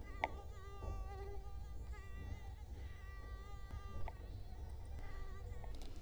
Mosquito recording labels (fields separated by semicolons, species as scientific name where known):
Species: Culex quinquefasciatus; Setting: cup